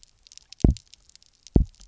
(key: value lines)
label: biophony, double pulse
recorder: SoundTrap 300